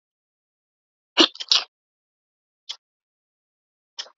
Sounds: Sneeze